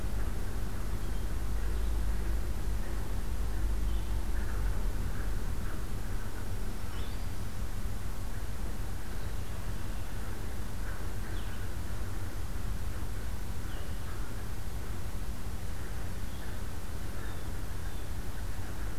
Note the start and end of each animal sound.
0.9s-1.3s: Blue Jay (Cyanocitta cristata)
1.6s-4.2s: Blue-headed Vireo (Vireo solitarius)
6.4s-7.6s: Black-throated Green Warbler (Setophaga virens)
6.8s-19.0s: Blue-headed Vireo (Vireo solitarius)
17.2s-18.1s: Blue Jay (Cyanocitta cristata)

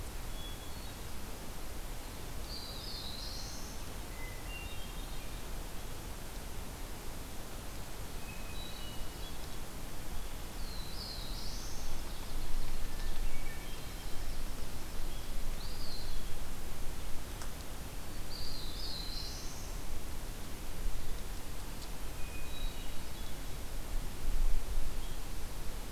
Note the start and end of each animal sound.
0.0s-1.6s: Hermit Thrush (Catharus guttatus)
2.3s-3.9s: Black-throated Blue Warbler (Setophaga caerulescens)
2.4s-4.0s: Eastern Wood-Pewee (Contopus virens)
4.0s-5.5s: Hermit Thrush (Catharus guttatus)
8.1s-9.5s: Hermit Thrush (Catharus guttatus)
10.5s-12.0s: Black-throated Blue Warbler (Setophaga caerulescens)
11.5s-12.6s: Ovenbird (Seiurus aurocapilla)
12.7s-14.2s: Hermit Thrush (Catharus guttatus)
15.3s-16.4s: Eastern Wood-Pewee (Contopus virens)
18.1s-19.9s: Black-throated Blue Warbler (Setophaga caerulescens)
22.0s-23.7s: Hermit Thrush (Catharus guttatus)

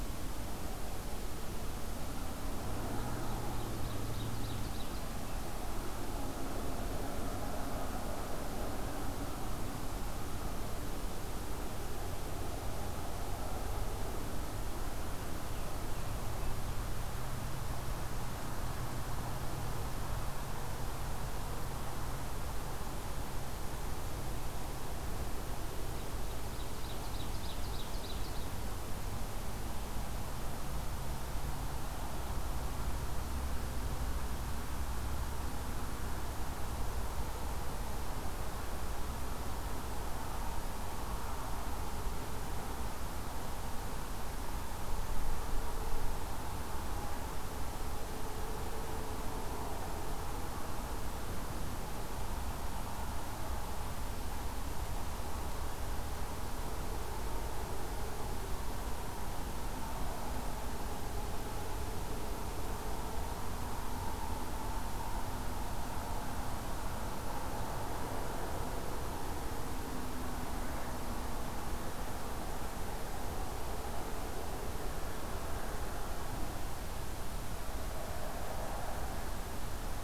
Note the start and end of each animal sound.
2.6s-5.4s: Ovenbird (Seiurus aurocapilla)
26.2s-28.8s: Ovenbird (Seiurus aurocapilla)

